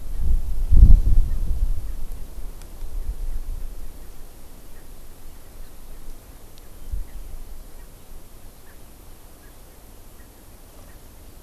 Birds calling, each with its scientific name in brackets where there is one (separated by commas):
Erckel's Francolin (Pternistis erckelii)